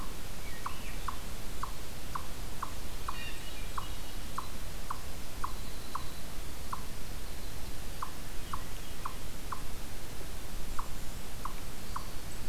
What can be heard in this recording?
Eastern Chipmunk, Hermit Thrush, Winter Wren